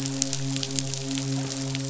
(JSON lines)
{"label": "biophony, midshipman", "recorder": "SoundTrap 500"}